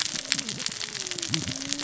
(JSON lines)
{"label": "biophony, cascading saw", "recorder": "SoundTrap 600 or HydroMoth"}